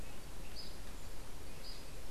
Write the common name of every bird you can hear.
unidentified bird